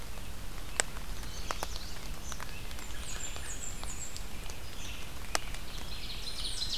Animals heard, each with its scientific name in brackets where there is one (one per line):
Red-eyed Vireo (Vireo olivaceus)
Blackburnian Warbler (Setophaga fusca)
Eastern Kingbird (Tyrannus tyrannus)
Yellow Warbler (Setophaga petechia)
American Robin (Turdus migratorius)
Ovenbird (Seiurus aurocapilla)